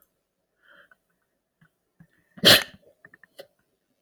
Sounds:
Sneeze